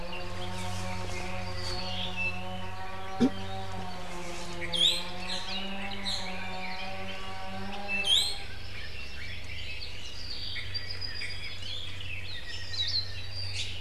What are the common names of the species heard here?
Apapane, Iiwi, Red-billed Leiothrix, Hawaii Amakihi, Hawaii Akepa